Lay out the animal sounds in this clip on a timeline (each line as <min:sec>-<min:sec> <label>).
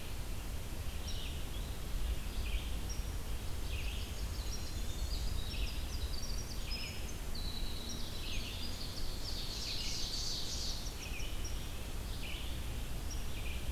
0:00.0-0:13.7 Red-eyed Vireo (Vireo olivaceus)
0:03.6-0:05.3 Blackburnian Warbler (Setophaga fusca)
0:05.4-0:11.4 Winter Wren (Troglodytes hiemalis)
0:08.9-0:10.8 Ovenbird (Seiurus aurocapilla)